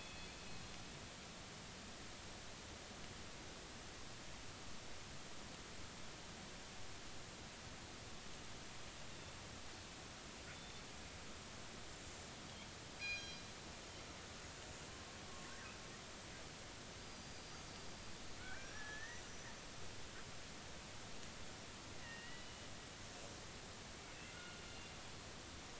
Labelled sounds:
0.0	0.3	killer whale, northern resident, G clan, 2.5 to 2.6 kHz
13.0	13.4	killer whale, northern resident, G clan, call N24ii, 1.6 to 6.5 kHz
17.0	17.6	killer whale, northern resident, 4.7 to 4.9 kHz
18.4	19.2	killer whale, northern resident, 1.4 to 6.1 kHz
22.0	22.7	killer whale, northern resident, 1.8 to 3.0 kHz
24.2	24.6	killer whale, northern resident, G clan, call N40, 1.4 to 2.2 kHz

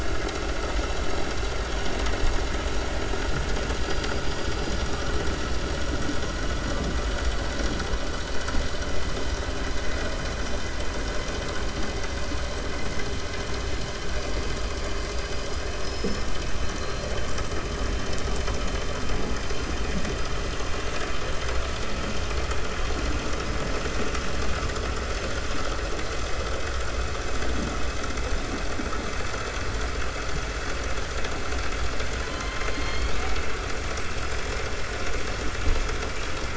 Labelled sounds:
14.7	15.4	killer whale, 4.7 to 5.4 kHz
15.7	16.2	killer whale, 4.3 to 5.8 kHz
32.2	33.5	killer whale, 0.93 to 4.7 kHz

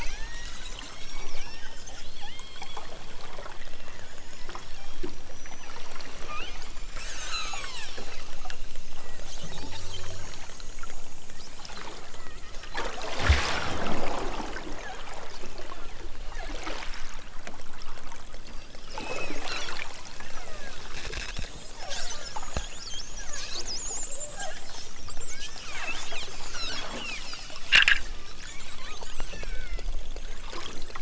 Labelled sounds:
0.0	3.1	killer whale, southern Alaska resident, 0.55 to 8.0 kHz
3.7	4.1	killer whale, southern Alaska resident, 0.88 to 3.6 kHz
4.6	5.1	killer whale, southern Alaska resident, 1.7 to 4.1 kHz
6.2	8.0	killer whale, southern Alaska resident, 0.55 to 8.0 kHz
8.9	9.4	killer whale, southern Alaska resident, 0.83 to 3.4 kHz
10.2	10.6	killer whale, southern Alaska resident, 0.46 to 2.4 kHz
12.1	12.4	killer whale, southern Alaska resident, 0.69 to 3.5 kHz
19.0	19.4	killer whale, southern Alaska resident, 1.6 to 6.2 kHz
20.3	20.8	killer whale, southern Alaska resident, 0.55 to 2.5 kHz
21.8	22.3	killer whale, southern Alaska resident, 0.51 to 3.1 kHz
23.2	23.6	killer whale, southern Alaska resident, 0.32 to 2.1 kHz
25.2	25.8	killer whale, southern Alaska resident, 0.69 to 3.5 kHz
26.5	27.3	killer whale, southern Alaska resident, 1.5 to 8.0 kHz
29.3	29.9	killer whale, southern Alaska resident, 1.0 to 3.7 kHz

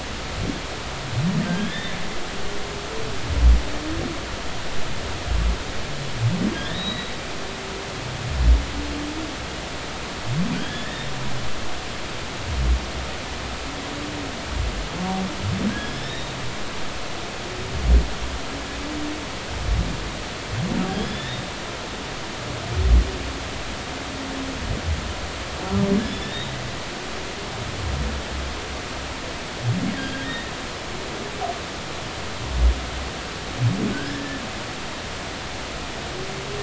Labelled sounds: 1.5	2.0	humpback whale, 1.5 to 3.7 kHz
6.6	7.1	humpback whale, 3.4 to 4.0 kHz
10.5	11.1	humpback whale, 1.4 to 3.5 kHz
15.7	16.3	humpback whale, 1.5 to 3.9 kHz
20.9	21.4	humpback whale, 1.7 to 5.2 kHz
26.0	26.5	humpback whale, 1.7 to 3.6 kHz
30.0	30.3	humpback whale, 1.5 to 1.7 kHz
33.9	34.4	humpback whale, 1.4 to 1.8 kHz

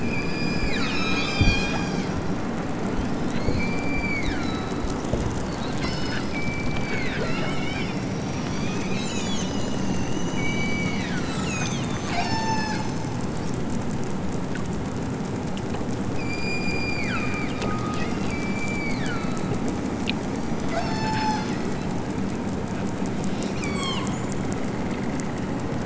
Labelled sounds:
0.0	2.2	killer whale, southern Alaska resident, 0.92 to 8.0 kHz
3.4	4.9	killer whale, southern Alaska resident, 1.1 to 7.4 kHz
5.7	7.9	killer whale, southern Alaska resident, 0.92 to 8.0 kHz
8.3	9.6	killer whale, southern Alaska resident, 1.5 to 8.0 kHz
10.4	13.2	killer whale, southern Alaska resident, 0.46 to 8.0 kHz
16.1	19.6	killer whale, southern Alaska resident, 0.97 to 8.0 kHz
20.3	21.5	killer whale, southern Alaska resident, 0.41 to 8.0 kHz
23.5	24.4	killer whale, southern Alaska resident, 0.78 to 8.0 kHz

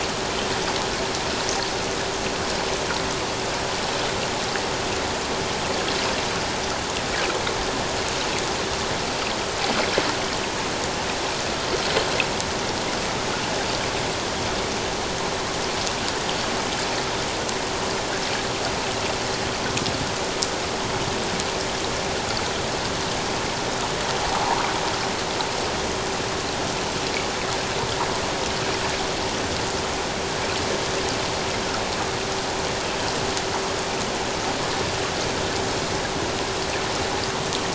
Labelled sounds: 24.3	24.6	sound from a nearby beach, 0.78 to 1.1 kHz

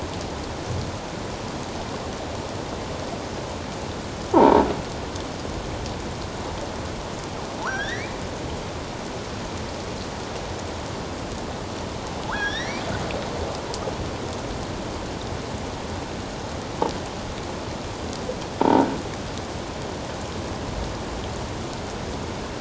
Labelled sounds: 4.3	4.7	croaking sound likely from a nearby submerged object, 0.78 to 1.1 kHz
7.6	8.1	killer whale, offshore, 0.81 to 5.8 kHz
12.3	12.8	killer whale, offshore, 1.1 to 5.9 kHz
18.6	19.0	croaking sound likely from a nearby submerged object, 0.84 to 1.6 kHz

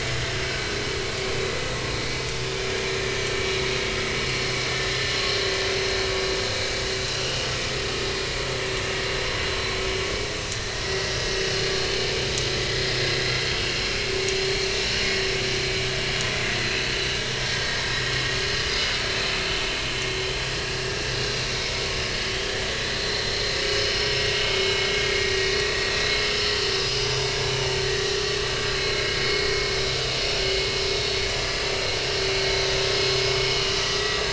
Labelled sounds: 0.4	0.8	vessel noise, 1.4 to 1.6 kHz
4.3	4.5	vessel noise, 4.2 to 4.4 kHz
10.2	10.4	vessel noise, 5.4 to 5.6 kHz
18.7	19.0	vessel noise, 4.7 to 5.0 kHz
22.2	22.6	vessel noise, 3.1 to 4.7 kHz
23.0	24.1	vessel noise, 4.0 to 4.4 kHz
24.5	24.7	vessel noise, 2.1 to 2.2 kHz
26.8	27.2	vessel noise, 4.9 to 5.1 kHz
28.5	29.0	vessel noise, 1.5 to 2.3 kHz
33.8	34.2	vessel noise, 1.9 to 3.8 kHz

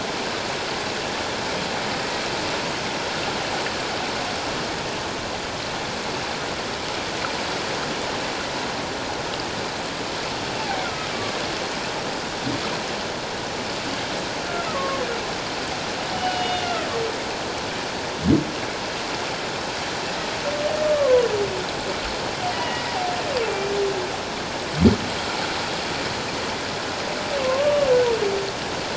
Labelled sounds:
10.6	11.1	humpback whale, 0.78 to 1.5 kHz
14.4	15.0	humpback whale, 1.0 to 1.4 kHz
16.1	16.8	humpback whale, 2.8 to 3.7 kHz
20.8	21.3	humpback whale, 0.94 to 1.2 kHz
22.5	22.9	humpback whale, 1.9 to 3.0 kHz
27.4	27.9	humpback whale, 1.0 to 1.2 kHz

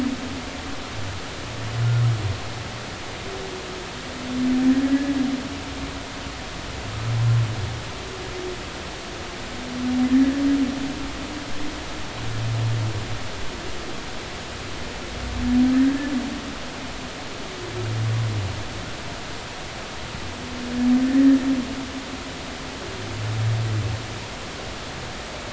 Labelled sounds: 4.9	5.1	humpback whale, 1.6 to 1.8 kHz

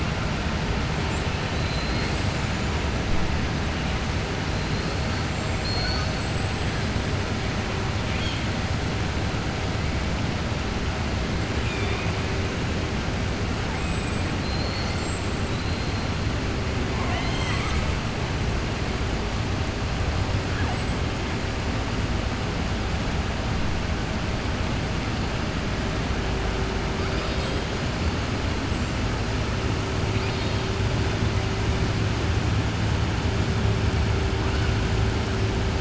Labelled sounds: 1.5	2.7	killer whale, southern resident, 3.1 to 8.0 kHz
5.5	6.2	killer whale, southern resident, 4.1 to 6.0 kHz
8.0	8.4	killer whale, southern resident, 2.0 to 4.3 kHz
11.6	12.1	killer whale, southern resident, 1.2 to 3.7 kHz
30.1	30.6	killer whale, southern resident, 2.4 to 5.0 kHz

